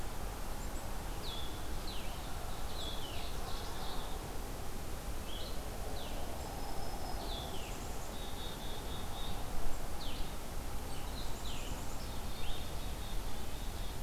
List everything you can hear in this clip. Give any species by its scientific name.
Vireo solitarius, Seiurus aurocapilla, Setophaga virens, Poecile atricapillus, Sitta canadensis